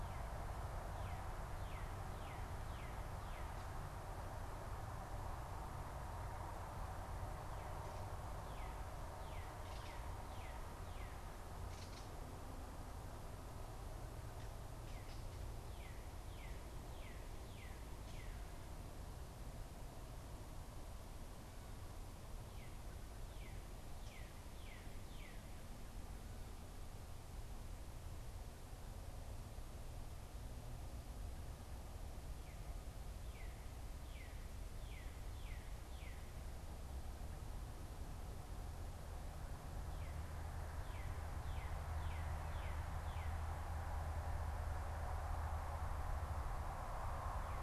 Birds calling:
Northern Cardinal (Cardinalis cardinalis), Gray Catbird (Dumetella carolinensis)

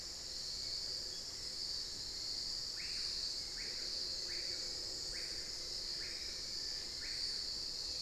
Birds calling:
Hauxwell's Thrush (Turdus hauxwelli), Long-billed Woodcreeper (Nasica longirostris), Screaming Piha (Lipaugus vociferans)

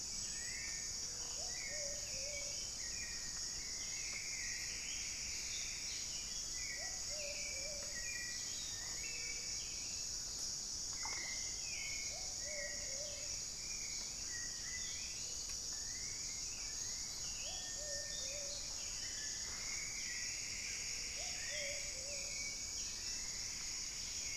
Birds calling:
Hauxwell's Thrush (Turdus hauxwelli), Plumbeous Pigeon (Patagioenas plumbea), Plumbeous Antbird (Myrmelastes hyperythrus), Cinereous Tinamou (Crypturellus cinereus)

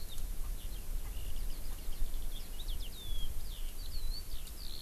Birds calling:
Erckel's Francolin (Pternistis erckelii), Eurasian Skylark (Alauda arvensis)

